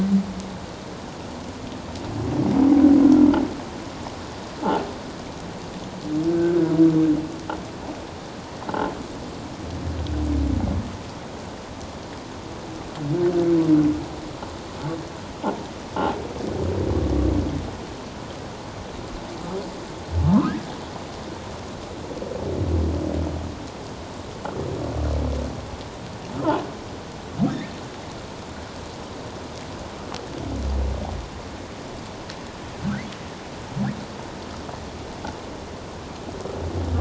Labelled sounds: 6.3	6.6	humpback whale, 1.3 to 1.6 kHz
20.2	20.6	humpback whale, 0.84 to 1.4 kHz

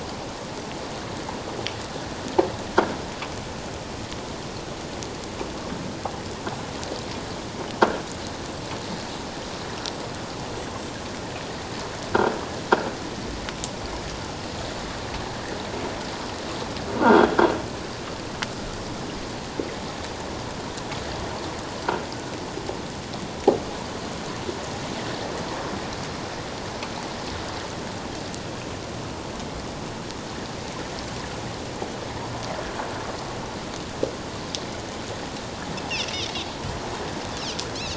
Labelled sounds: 17.1	17.3	croaking sound likely from a nearby submerged object, 3.2 to 3.5 kHz

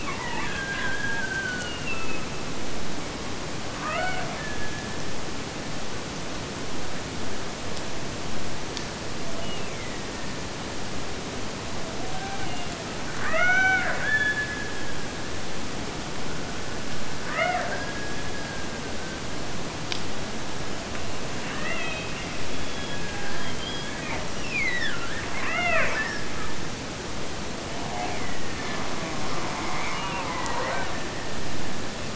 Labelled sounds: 0.0	2.8	killer whale, Bigg's (transient), Gulf of Alaska transient, 0.75 to 3.3 kHz
3.7	5.2	killer whale, Bigg's (transient), Gulf of Alaska transient, 0.49 to 3.2 kHz
9.3	10.7	killer whale, Bigg's (transient), Gulf of Alaska transient, 1.5 to 3.0 kHz
11.7	15.7	killer whale, Bigg's (transient), Gulf of Alaska transient, 0.39 to 3.5 kHz
17.3	19.4	killer whale, Bigg's (transient), Gulf of Alaska transient, 0.51 to 3.0 kHz
21.5	26.7	killer whale, Bigg's (transient), Gulf of Alaska transient, 0.26 to 7.0 kHz
27.9	28.9	killer whale, Bigg's (transient), Gulf of Alaska transient, 1.5 to 2.7 kHz
29.9	32.1	killer whale, Bigg's (transient), Gulf of Alaska transient, 1.1 to 3.3 kHz

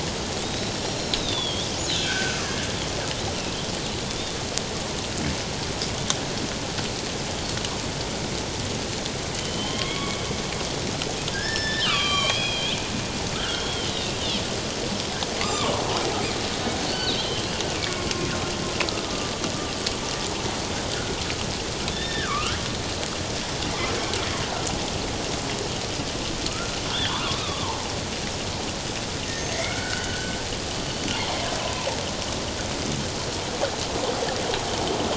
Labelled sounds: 0.4	1.7	killer whale, northern resident, G clan, 3.2 to 6.4 kHz
2.0	2.4	killer whale, northern resident, G clan, 1.3 to 1.7 kHz
4.1	4.3	killer whale, northern resident, G clan, 3.4 to 3.8 kHz
9.3	10.2	killer whale, northern resident, G clan, 1.0 to 3.5 kHz
11.3	12.8	killer whale, northern resident, G clan, 1.0 to 5.6 kHz
13.3	14.2	killer whale, northern resident, G clan, 1.2 to 3.4 kHz
15.4	15.7	killer whale, northern resident, G clan, 1.0 to 1.3 kHz
16.9	18.1	killer whale, northern resident, G clan, 1.3 to 4.6 kHz
19.1	19.4	killer whale, northern resident, G clan, 1.1 to 1.2 kHz
21.9	22.6	killer whale, northern resident, G clan, 1.0 to 3.7 kHz
26.5	27.8	killer whale, northern resident, G clan, 0.81 to 3.7 kHz
29.5	30.4	killer whale, northern resident, G clan, 1.3 to 3.1 kHz
31.6	32.0	killer whale, northern resident, G clan, 0.81 to 1.1 kHz

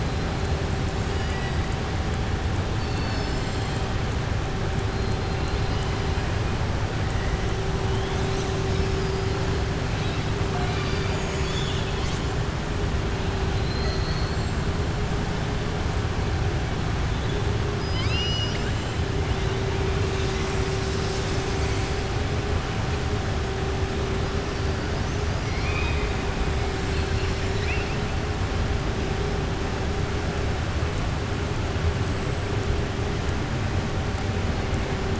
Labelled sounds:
0.9	1.6	killer whale, southern resident, 1.7 to 7.7 kHz
8.6	9.2	killer whale, southern resident, 4.5 to 6.0 kHz
13.5	14.4	killer whale, southern resident, 3.3 to 6.6 kHz
17.7	18.8	killer whale, southern resident, 1.3 to 5.8 kHz
25.3	26.1	killer whale, southern resident, 1.2 to 5.9 kHz

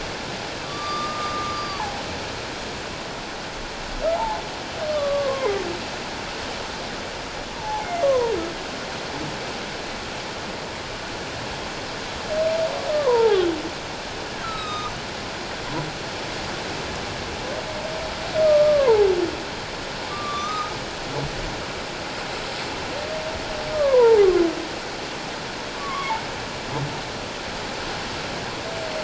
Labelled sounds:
0.6	2.0	humpback whale, 0.78 to 4.9 kHz
4.1	4.4	humpback whale, 0.78 to 1.0 kHz
4.9	5.5	humpback whale, 0.94 to 1.2 kHz
7.6	8.4	humpback whale, 0.78 to 1.2 kHz
12.9	13.5	humpback whale, 0.78 to 1.4 kHz
14.4	14.9	humpback whale, 1.1 to 6.2 kHz
18.4	19.1	humpback whale, 0.78 to 1.3 kHz
20.1	20.8	humpback whale, 1.1 to 6.3 kHz
23.7	24.3	humpback whale, 0.78 to 1.2 kHz
25.8	26.2	humpback whale, 0.78 to 1.2 kHz

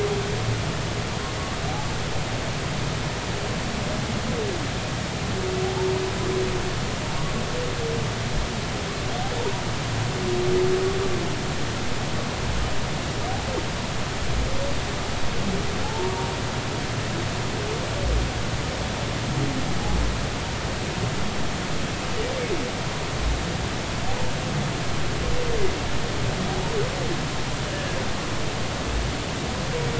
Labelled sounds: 15.8	16.1	humpback whale, 0.80 to 0.96 kHz

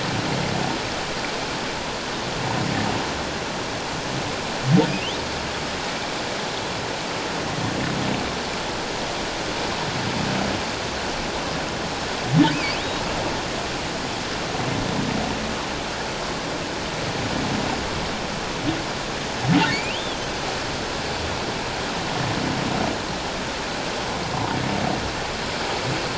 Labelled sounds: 4.9	5.1	humpback whale, 2.4 to 3.2 kHz
19.7	20.3	humpback whale, 2.0 to 3.6 kHz

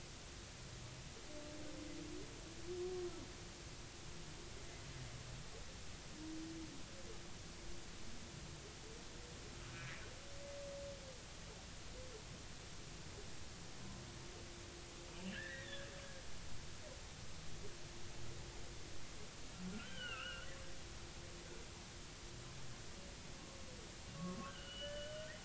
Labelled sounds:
9.6	9.9	humpback whale, 1.2 to 1.6 kHz
15.3	15.9	humpback whale, 1.5 to 3.9 kHz
19.6	20.5	humpback whale, 1.2 to 3.2 kHz
24.2	25.3	humpback whale, 1.0 to 3.2 kHz

